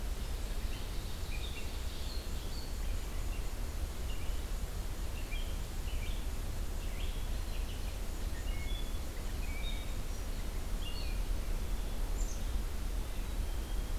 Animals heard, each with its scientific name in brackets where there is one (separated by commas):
Red-eyed Vireo (Vireo olivaceus), Ovenbird (Seiurus aurocapilla), Black-capped Chickadee (Poecile atricapillus)